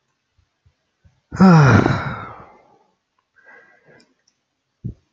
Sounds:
Sigh